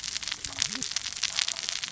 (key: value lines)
label: biophony, cascading saw
recorder: SoundTrap 600 or HydroMoth